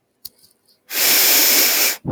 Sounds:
Sniff